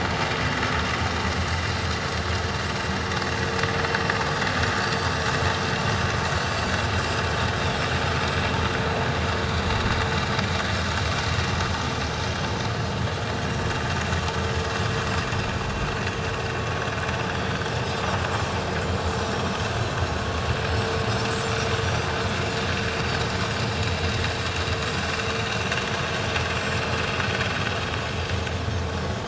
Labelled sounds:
4.8	5.1	Pacific white-sided dolphin, 4.4 to 4.7 kHz
7.6	7.9	Pacific white-sided dolphin, 5.3 to 5.6 kHz
17.3	17.7	Pacific white-sided dolphin, 4.5 to 4.8 kHz
19.3	19.8	Pacific white-sided dolphin, 5.4 to 6.7 kHz
21.9	22.2	Pacific white-sided dolphin, 4.5 to 4.8 kHz
26.6	26.8	Pacific white-sided dolphin, 7.1 to 7.6 kHz

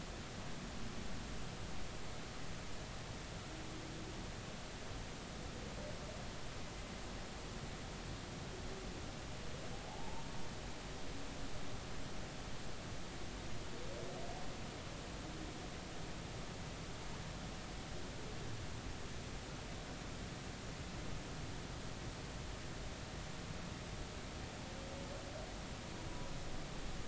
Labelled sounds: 9.8	10.2	humpback whale, 0.80 to 0.99 kHz

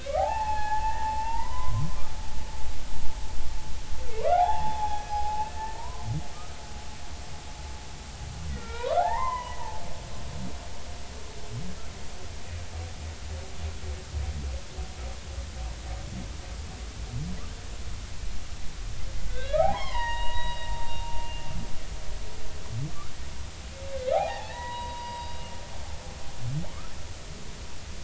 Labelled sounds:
0.0	1.9	humpback whale, 0.80 to 4.4 kHz
4.2	6.1	humpback whale, 0.80 to 2.6 kHz
8.5	9.6	humpback whale, 0.80 to 3.9 kHz
19.3	21.1	humpback whale, 0.80 to 4.8 kHz
24.1	25.3	humpback whale, 0.80 to 3.9 kHz

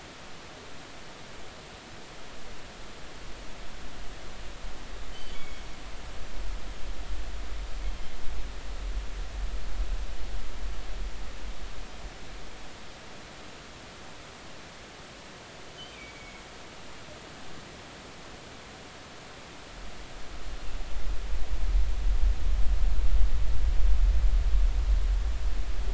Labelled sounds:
5.1	5.6	killer whale, northern resident, G clan, GG subclan, call N23ii, 2.1 to 3.2 kHz
15.9	16.4	killer whale, northern resident, G clan, GG subclan, call N23ii, 2.1 to 2.6 kHz

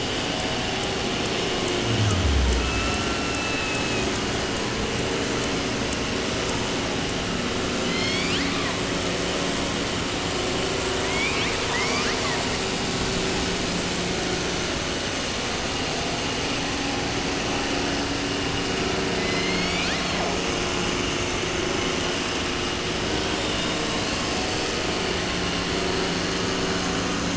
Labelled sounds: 2.5	4.2	killer whale, 0.77 to 5.8 kHz
7.8	8.8	killer whale, 0.30 to 8.0 kHz
11.0	12.4	killer whale, southern resident, 0.30 to 7.7 kHz
19.1	20.3	killer whale, 0.57 to 8.0 kHz
23.3	24.7	killer whale, 2.1 to 8.0 kHz

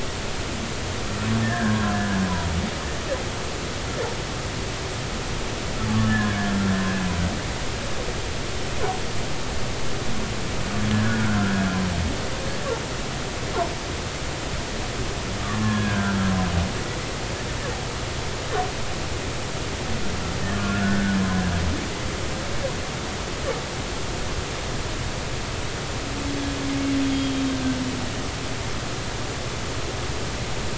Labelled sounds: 1.4	1.9	humpback whale, 1.5 to 1.9 kHz
6.1	6.5	humpback whale, 1.5 to 1.8 kHz
11.0	11.7	humpback whale, 1.3 to 1.8 kHz
15.4	16.2	humpback whale, 1.0 to 1.8 kHz
20.6	21.2	humpback whale, 1.3 to 1.8 kHz
27.1	27.4	humpback whale, 3.2 to 3.3 kHz

